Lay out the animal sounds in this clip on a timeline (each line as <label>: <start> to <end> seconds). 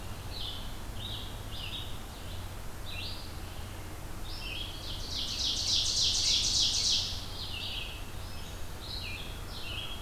Red-eyed Vireo (Vireo olivaceus): 0.0 to 4.8 seconds
Ovenbird (Seiurus aurocapilla): 4.6 to 7.1 seconds
Red-eyed Vireo (Vireo olivaceus): 7.1 to 10.0 seconds
Black-throated Green Warbler (Setophaga virens): 8.0 to 8.8 seconds